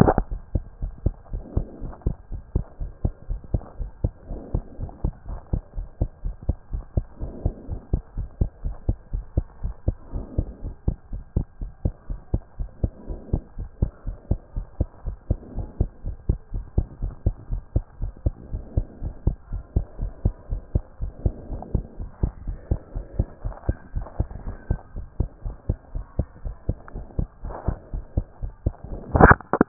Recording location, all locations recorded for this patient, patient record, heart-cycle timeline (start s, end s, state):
pulmonary valve (PV)
aortic valve (AV)+pulmonary valve (PV)+tricuspid valve (TV)+mitral valve (MV)
#Age: Child
#Sex: Female
#Height: 117.0 cm
#Weight: 19.2 kg
#Pregnancy status: False
#Murmur: Absent
#Murmur locations: nan
#Most audible location: nan
#Systolic murmur timing: nan
#Systolic murmur shape: nan
#Systolic murmur grading: nan
#Systolic murmur pitch: nan
#Systolic murmur quality: nan
#Diastolic murmur timing: nan
#Diastolic murmur shape: nan
#Diastolic murmur grading: nan
#Diastolic murmur pitch: nan
#Diastolic murmur quality: nan
#Outcome: Normal
#Campaign: 2014 screening campaign
0.00	3.80	unannotated
3.80	3.90	S1
3.90	4.02	systole
4.02	4.12	S2
4.12	4.30	diastole
4.30	4.40	S1
4.40	4.54	systole
4.54	4.62	S2
4.62	4.80	diastole
4.80	4.90	S1
4.90	5.04	systole
5.04	5.12	S2
5.12	5.28	diastole
5.28	5.38	S1
5.38	5.52	systole
5.52	5.60	S2
5.60	5.76	diastole
5.76	5.86	S1
5.86	6.00	systole
6.00	6.08	S2
6.08	6.24	diastole
6.24	6.34	S1
6.34	6.48	systole
6.48	6.56	S2
6.56	6.72	diastole
6.72	6.84	S1
6.84	6.96	systole
6.96	7.04	S2
7.04	7.22	diastole
7.22	7.32	S1
7.32	7.44	systole
7.44	7.54	S2
7.54	7.70	diastole
7.70	7.80	S1
7.80	7.92	systole
7.92	8.00	S2
8.00	8.16	diastole
8.16	8.28	S1
8.28	8.40	systole
8.40	8.50	S2
8.50	8.64	diastole
8.64	8.74	S1
8.74	8.88	systole
8.88	8.96	S2
8.96	9.12	diastole
9.12	9.24	S1
9.24	9.36	systole
9.36	9.46	S2
9.46	9.62	diastole
9.62	9.74	S1
9.74	9.86	systole
9.86	9.96	S2
9.96	10.14	diastole
10.14	10.24	S1
10.24	10.36	systole
10.36	10.46	S2
10.46	10.64	diastole
10.64	10.74	S1
10.74	10.86	systole
10.86	10.96	S2
10.96	11.12	diastole
11.12	11.22	S1
11.22	11.36	systole
11.36	11.46	S2
11.46	11.62	diastole
11.62	11.70	S1
11.70	11.84	systole
11.84	11.92	S2
11.92	12.10	diastole
12.10	12.18	S1
12.18	12.32	systole
12.32	12.42	S2
12.42	12.58	diastole
12.58	12.68	S1
12.68	12.82	systole
12.82	12.92	S2
12.92	13.08	diastole
13.08	13.20	S1
13.20	13.32	systole
13.32	13.42	S2
13.42	13.58	diastole
13.58	13.68	S1
13.68	13.80	systole
13.80	13.90	S2
13.90	14.06	diastole
14.06	14.16	S1
14.16	14.30	systole
14.30	14.38	S2
14.38	14.56	diastole
14.56	14.66	S1
14.66	14.78	systole
14.78	14.88	S2
14.88	15.06	diastole
15.06	15.16	S1
15.16	15.28	systole
15.28	15.38	S2
15.38	15.56	diastole
15.56	15.68	S1
15.68	15.78	systole
15.78	15.88	S2
15.88	16.06	diastole
16.06	16.16	S1
16.16	16.28	systole
16.28	16.38	S2
16.38	16.54	diastole
16.54	16.64	S1
16.64	16.76	systole
16.76	16.86	S2
16.86	17.02	diastole
17.02	17.12	S1
17.12	17.24	systole
17.24	17.34	S2
17.34	17.50	diastole
17.50	17.62	S1
17.62	17.74	systole
17.74	17.84	S2
17.84	18.00	diastole
18.00	18.12	S1
18.12	18.24	systole
18.24	18.34	S2
18.34	18.52	diastole
18.52	18.62	S1
18.62	18.76	systole
18.76	18.86	S2
18.86	19.02	diastole
19.02	19.14	S1
19.14	19.26	systole
19.26	19.36	S2
19.36	19.52	diastole
19.52	19.62	S1
19.62	19.74	systole
19.74	19.84	S2
19.84	20.00	diastole
20.00	20.12	S1
20.12	20.24	systole
20.24	20.34	S2
20.34	20.50	diastole
20.50	20.62	S1
20.62	20.74	systole
20.74	20.84	S2
20.84	21.02	diastole
21.02	21.12	S1
21.12	21.24	systole
21.24	21.34	S2
21.34	21.50	diastole
21.50	21.62	S1
21.62	21.74	systole
21.74	21.84	S2
21.84	22.00	diastole
22.00	22.10	S1
22.10	22.22	systole
22.22	22.30	S2
22.30	22.46	diastole
22.46	22.56	S1
22.56	22.70	systole
22.70	22.78	S2
22.78	22.94	diastole
22.94	23.04	S1
23.04	23.18	systole
23.18	23.26	S2
23.26	23.44	diastole
23.44	23.54	S1
23.54	23.66	systole
23.66	23.74	S2
23.74	23.94	diastole
23.94	24.06	S1
24.06	24.18	systole
24.18	24.28	S2
24.28	24.46	diastole
24.46	24.56	S1
24.56	24.68	systole
24.68	24.80	S2
24.80	24.96	diastole
24.96	25.06	S1
25.06	25.18	systole
25.18	25.28	S2
25.28	25.44	diastole
25.44	25.54	S1
25.54	25.68	systole
25.68	25.76	S2
25.76	25.94	diastole
25.94	26.04	S1
26.04	26.18	systole
26.18	26.26	S2
26.26	26.44	diastole
26.44	26.54	S1
26.54	26.68	systole
26.68	26.76	S2
26.76	26.94	diastole
26.94	27.06	S1
27.06	27.18	systole
27.18	27.28	S2
27.28	27.44	diastole
27.44	27.54	S1
27.54	27.66	systole
27.66	27.76	S2
27.76	27.94	diastole
27.94	28.04	S1
28.04	28.16	systole
28.16	28.26	S2
28.26	28.42	diastole
28.42	28.52	S1
28.52	28.64	systole
28.64	28.74	S2
28.74	28.92	diastole
28.92	29.68	unannotated